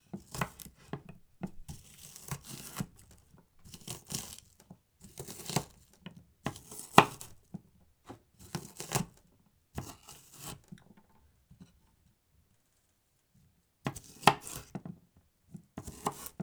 Is the person outside?
no